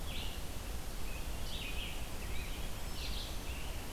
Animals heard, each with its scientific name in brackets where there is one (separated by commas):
Red-eyed Vireo (Vireo olivaceus), Scarlet Tanager (Piranga olivacea)